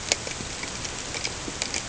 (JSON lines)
{"label": "ambient", "recorder": "HydroMoth"}